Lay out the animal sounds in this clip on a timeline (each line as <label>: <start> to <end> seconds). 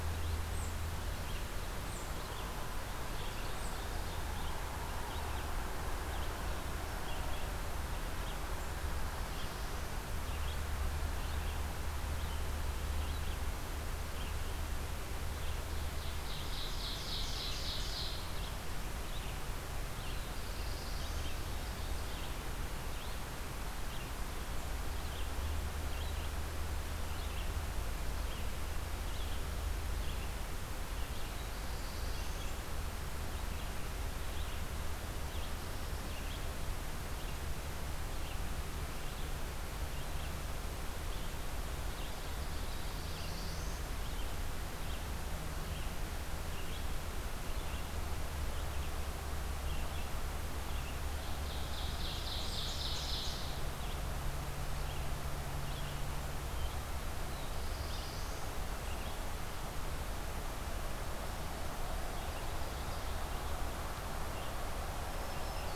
Red-eyed Vireo (Vireo olivaceus): 0.0 to 6.4 seconds
Ovenbird (Seiurus aurocapilla): 2.9 to 4.2 seconds
Red-eyed Vireo (Vireo olivaceus): 6.8 to 65.8 seconds
Ovenbird (Seiurus aurocapilla): 15.3 to 18.4 seconds
Black-throated Blue Warbler (Setophaga caerulescens): 19.8 to 21.7 seconds
Black-throated Blue Warbler (Setophaga caerulescens): 31.2 to 32.8 seconds
Ovenbird (Seiurus aurocapilla): 41.5 to 43.3 seconds
Black-throated Blue Warbler (Setophaga caerulescens): 42.1 to 44.1 seconds
Ovenbird (Seiurus aurocapilla): 50.9 to 53.6 seconds
Black-throated Blue Warbler (Setophaga caerulescens): 57.0 to 58.9 seconds
Black-throated Green Warbler (Setophaga virens): 65.0 to 65.8 seconds